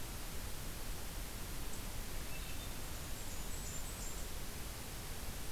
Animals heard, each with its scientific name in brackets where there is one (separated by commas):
Swainson's Thrush (Catharus ustulatus), Blackburnian Warbler (Setophaga fusca)